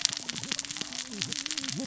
{"label": "biophony, cascading saw", "recorder": "SoundTrap 600 or HydroMoth"}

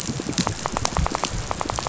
{"label": "biophony, rattle", "recorder": "SoundTrap 500"}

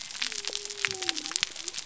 {"label": "biophony", "recorder": "SoundTrap 300"}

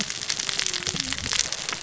{"label": "biophony, cascading saw", "recorder": "SoundTrap 600 or HydroMoth"}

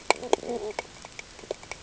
{"label": "ambient", "recorder": "HydroMoth"}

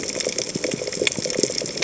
{"label": "biophony, chatter", "recorder": "HydroMoth"}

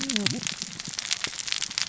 {"label": "biophony, cascading saw", "recorder": "SoundTrap 600 or HydroMoth"}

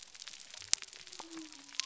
{"label": "biophony", "recorder": "SoundTrap 300"}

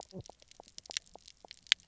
{"label": "biophony, knock croak", "recorder": "SoundTrap 300"}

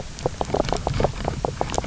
{"label": "biophony, knock croak", "recorder": "SoundTrap 300"}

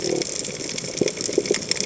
{"label": "biophony", "recorder": "HydroMoth"}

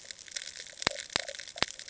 {"label": "ambient", "recorder": "HydroMoth"}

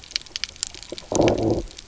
{"label": "biophony, low growl", "recorder": "SoundTrap 300"}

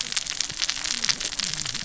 {"label": "biophony, cascading saw", "recorder": "SoundTrap 600 or HydroMoth"}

